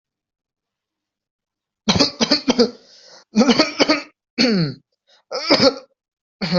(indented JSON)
{
  "expert_labels": [
    {
      "quality": "ok",
      "cough_type": "unknown",
      "dyspnea": false,
      "wheezing": false,
      "stridor": false,
      "choking": false,
      "congestion": false,
      "nothing": true,
      "diagnosis": "healthy cough",
      "severity": "pseudocough/healthy cough"
    }
  ],
  "age": 19,
  "gender": "male",
  "respiratory_condition": true,
  "fever_muscle_pain": false,
  "status": "COVID-19"
}